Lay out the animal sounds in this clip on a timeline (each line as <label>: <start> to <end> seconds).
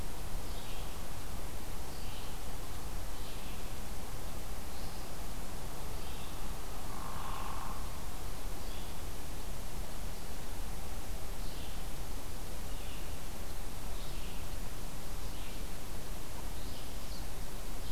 Red-eyed Vireo (Vireo olivaceus): 0.0 to 9.1 seconds
Hairy Woodpecker (Dryobates villosus): 6.7 to 8.1 seconds
Red-eyed Vireo (Vireo olivaceus): 11.4 to 17.9 seconds